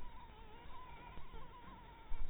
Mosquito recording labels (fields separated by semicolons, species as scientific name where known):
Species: Anopheles harrisoni; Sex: female; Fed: blood-fed; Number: one; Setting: cup